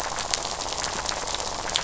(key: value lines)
label: biophony, rattle
recorder: SoundTrap 500